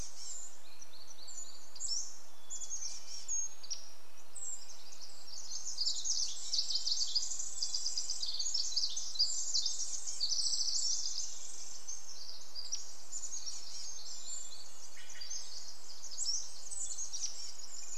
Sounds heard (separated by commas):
Chestnut-backed Chickadee call, unidentified sound, Hermit Thrush song, Red-breasted Nuthatch song, Pacific Wren song, Pacific-slope Flycatcher song, Northern Flicker call, Brown Creeper call, Steller's Jay call